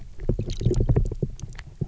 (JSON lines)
{"label": "biophony", "recorder": "SoundTrap 300"}